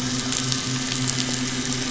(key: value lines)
label: anthrophony, boat engine
recorder: SoundTrap 500